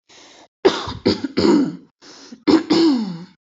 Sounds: Throat clearing